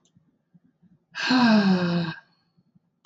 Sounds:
Sigh